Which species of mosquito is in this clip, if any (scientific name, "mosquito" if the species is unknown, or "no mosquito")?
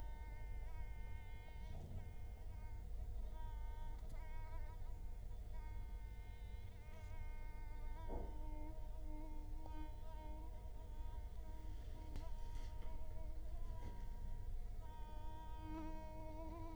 Culex quinquefasciatus